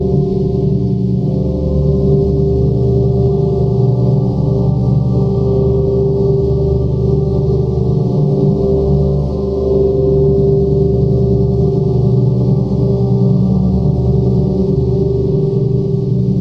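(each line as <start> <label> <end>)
0.0 A low, continuous hum with rich, layered tones. 16.4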